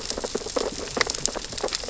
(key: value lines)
label: biophony, sea urchins (Echinidae)
recorder: SoundTrap 600 or HydroMoth